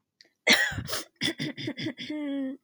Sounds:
Throat clearing